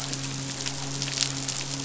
{"label": "biophony, midshipman", "recorder": "SoundTrap 500"}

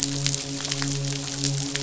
{"label": "biophony, midshipman", "recorder": "SoundTrap 500"}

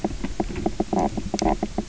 {"label": "biophony, knock croak", "recorder": "SoundTrap 300"}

